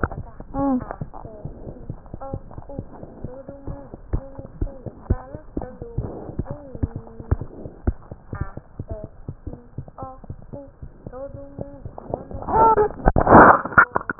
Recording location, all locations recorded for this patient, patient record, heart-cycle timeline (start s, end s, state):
mitral valve (MV)
pulmonary valve (PV)+tricuspid valve (TV)+mitral valve (MV)
#Age: Child
#Sex: Female
#Height: 81.0 cm
#Weight: 13.415 kg
#Pregnancy status: False
#Murmur: Absent
#Murmur locations: nan
#Most audible location: nan
#Systolic murmur timing: nan
#Systolic murmur shape: nan
#Systolic murmur grading: nan
#Systolic murmur pitch: nan
#Systolic murmur quality: nan
#Diastolic murmur timing: nan
#Diastolic murmur shape: nan
#Diastolic murmur grading: nan
#Diastolic murmur pitch: nan
#Diastolic murmur quality: nan
#Outcome: Normal
#Campaign: 2015 screening campaign
0.00	1.00	unannotated
1.00	1.06	S1
1.06	1.22	systole
1.22	1.28	S2
1.28	1.43	diastole
1.43	1.51	S1
1.51	1.67	systole
1.67	1.71	S2
1.71	1.88	diastole
1.88	1.95	S1
1.95	2.12	systole
2.12	2.18	S2
2.18	2.33	diastole
2.33	2.39	S1
2.39	2.57	systole
2.57	2.62	S2
2.62	2.77	diastole
2.77	2.84	S1
2.84	3.02	systole
3.02	3.08	S2
3.08	3.23	diastole
3.23	3.28	S1
3.28	3.48	systole
3.48	3.53	S2
3.53	3.66	diastole
3.66	3.74	S1
3.74	3.92	systole
3.92	3.97	S2
3.97	4.13	diastole
4.13	14.19	unannotated